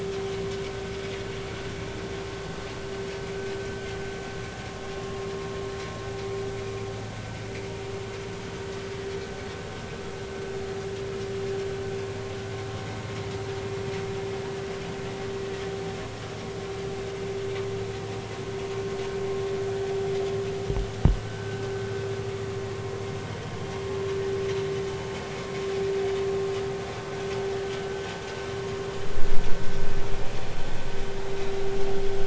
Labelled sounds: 21.3	21.6	vessel noise, 1.4 to 1.6 kHz

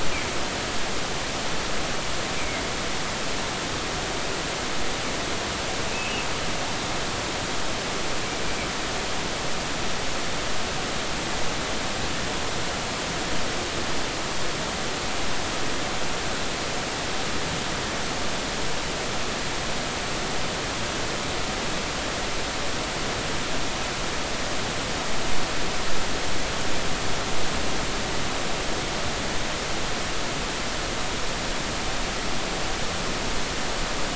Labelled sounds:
2.4	2.6	humpback whale, 2.0 to 2.5 kHz
5.9	6.2	humpback whale, 2.5 to 3.0 kHz

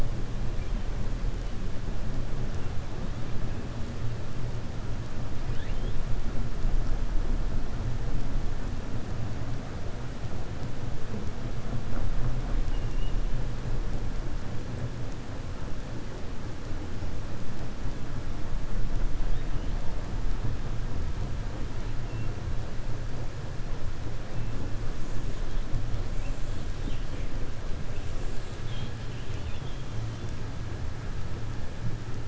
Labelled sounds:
12.6	13.2	killer whale, 2.1 to 3.7 kHz
26.7	27.3	killer whale, 2.1 to 3.9 kHz
29.0	29.8	killer whale, 2.1 to 4.0 kHz

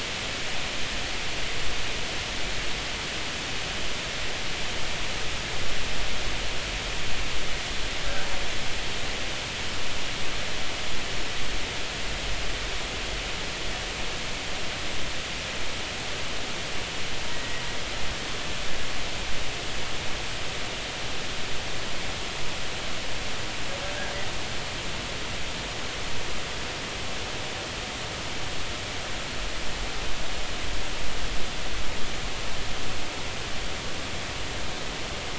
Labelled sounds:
17.3	17.6	killer whale, Bigg's (transient), 1.9 to 2.0 kHz

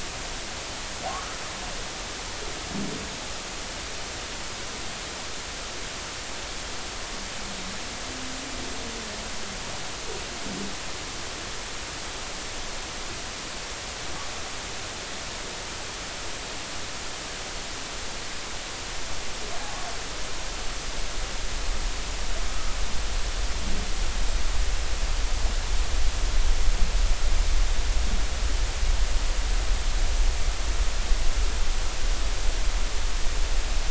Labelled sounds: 1.1	1.4	humpback whale, 1.0 to 1.5 kHz

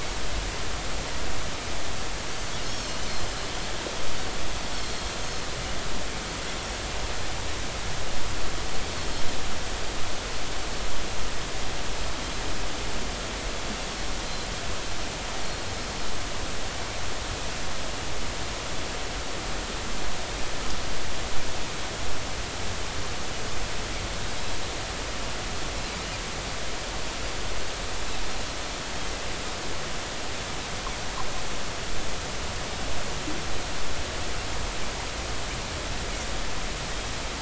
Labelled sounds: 2.6	3.4	Pacific white-sided dolphin, 4.2 to 6.7 kHz
9.0	9.2	Pacific white-sided dolphin, 4.2 to 4.4 kHz
14.2	14.5	Pacific white-sided dolphin, 4.0 to 4.2 kHz
15.4	15.6	Pacific white-sided dolphin, 4.2 to 4.4 kHz

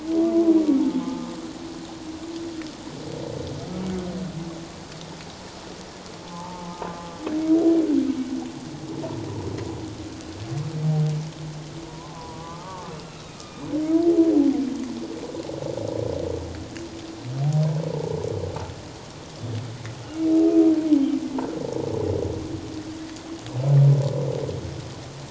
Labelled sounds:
0.8	1.4	humpback whale, 0.81 to 1.3 kHz
6.2	6.9	humpback whale, 0.81 to 1.1 kHz
11.8	13.7	humpback whale, 0.84 to 2.8 kHz

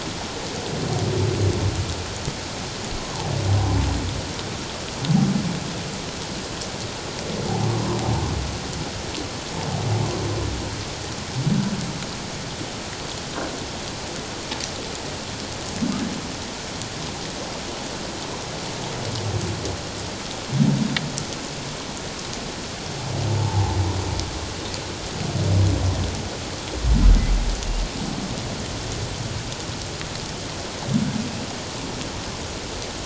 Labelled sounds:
3.0	3.3	humpback whale, 0.78 to 1.1 kHz
23.4	23.8	humpback whale, 0.78 to 1.0 kHz

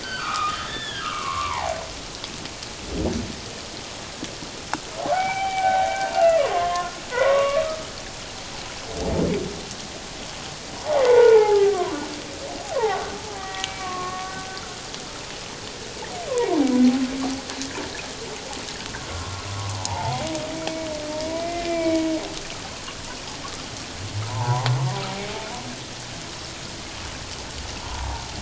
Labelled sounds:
0.0	1.8	humpback whale, 0.78 to 4.7 kHz
5.1	7.9	humpback whale, 0.78 to 3.2 kHz
11.0	11.9	humpback whale, 0.78 to 2.1 kHz
12.8	14.3	humpback whale, 0.78 to 2.5 kHz
16.3	16.7	humpback whale, 0.78 to 1.1 kHz
19.7	20.3	humpback whale, 0.78 to 1.1 kHz
21.4	22.1	humpback whale, 1.9 to 2.4 kHz
24.3	24.7	humpback whale, 0.78 to 1.1 kHz
27.8	28.2	humpback whale, 0.78 to 1.1 kHz

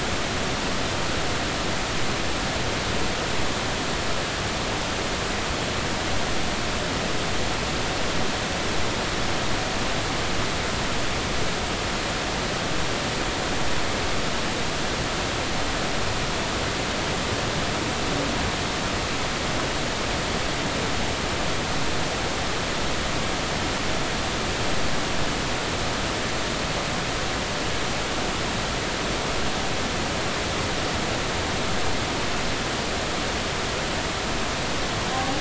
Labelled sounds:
35.1	35.3	humpback whale, 0.80 to 0.86 kHz

